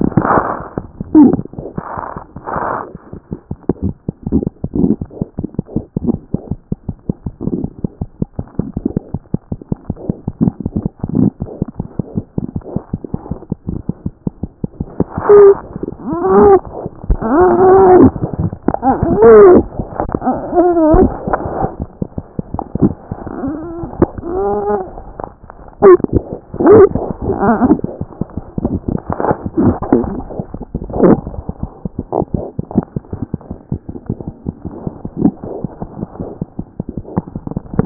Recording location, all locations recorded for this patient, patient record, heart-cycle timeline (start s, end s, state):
mitral valve (MV)
aortic valve (AV)+mitral valve (MV)
#Age: Infant
#Sex: Male
#Height: 47.0 cm
#Weight: 3.5 kg
#Pregnancy status: False
#Murmur: Absent
#Murmur locations: nan
#Most audible location: nan
#Systolic murmur timing: nan
#Systolic murmur shape: nan
#Systolic murmur grading: nan
#Systolic murmur pitch: nan
#Systolic murmur quality: nan
#Diastolic murmur timing: nan
#Diastolic murmur shape: nan
#Diastolic murmur grading: nan
#Diastolic murmur pitch: nan
#Diastolic murmur quality: nan
#Outcome: Normal
#Campaign: 2014 screening campaign
0.00	7.63	unannotated
7.63	7.68	S1
7.68	7.83	systole
7.83	7.87	S2
7.87	8.02	diastole
8.02	8.07	S1
8.07	8.22	systole
8.22	8.25	S2
8.25	8.38	diastole
8.38	8.44	S1
8.44	8.59	systole
8.59	8.62	S2
8.62	8.75	diastole
8.75	8.81	S1
8.81	8.96	systole
8.96	8.99	S2
8.99	9.16	diastole
9.16	9.22	S1
9.22	9.34	systole
9.34	9.38	S2
9.38	9.52	diastole
9.52	9.56	S1
9.56	9.70	systole
9.70	9.74	S2
9.74	9.90	diastole
9.90	9.94	S1
9.94	10.08	systole
10.08	10.14	S2
10.14	10.27	diastole
10.27	37.86	unannotated